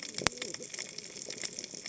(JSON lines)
{"label": "biophony, cascading saw", "recorder": "HydroMoth"}